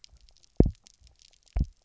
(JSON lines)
{"label": "biophony, double pulse", "recorder": "SoundTrap 300"}